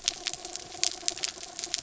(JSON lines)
{"label": "anthrophony, mechanical", "recorder": "SoundTrap 300"}